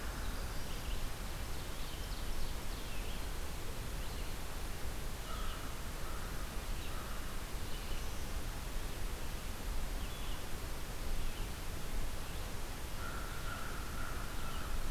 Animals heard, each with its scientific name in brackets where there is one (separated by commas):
Ovenbird (Seiurus aurocapilla), Winter Wren (Troglodytes hiemalis), American Crow (Corvus brachyrhynchos), Red-eyed Vireo (Vireo olivaceus)